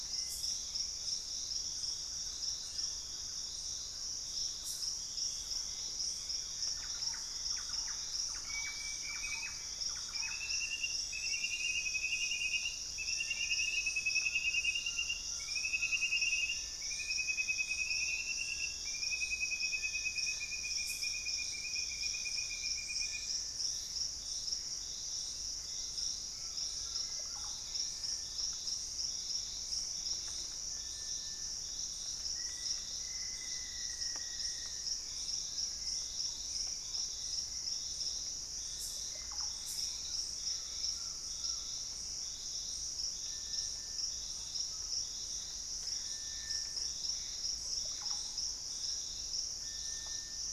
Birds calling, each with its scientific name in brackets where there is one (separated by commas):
Russet-backed Oropendola (Psarocolius angustifrons), Hauxwell's Thrush (Turdus hauxwelli), Thrush-like Wren (Campylorhynchus turdinus), unidentified bird, Collared Trogon (Trogon collaris), Black-faced Antthrush (Formicarius analis), Gray Antbird (Cercomacra cinerascens), Ringed Woodpecker (Celeus torquatus)